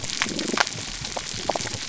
{"label": "biophony", "recorder": "SoundTrap 300"}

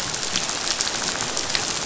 {"label": "biophony, rattle", "recorder": "SoundTrap 500"}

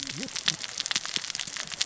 {"label": "biophony, cascading saw", "recorder": "SoundTrap 600 or HydroMoth"}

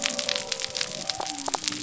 {"label": "biophony", "recorder": "SoundTrap 300"}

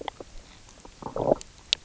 {"label": "biophony, low growl", "recorder": "SoundTrap 300"}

